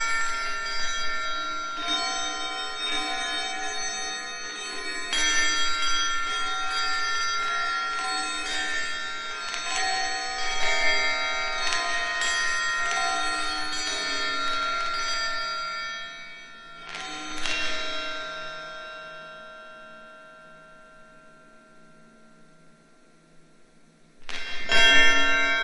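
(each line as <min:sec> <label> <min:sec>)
0:00.0 A bell rings rhythmically. 0:19.6
0:24.3 A bell rings rhythmically. 0:25.6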